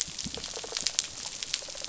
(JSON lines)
{"label": "biophony, rattle response", "recorder": "SoundTrap 500"}